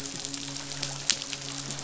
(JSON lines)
{"label": "biophony, midshipman", "recorder": "SoundTrap 500"}